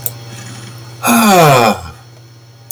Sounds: Sigh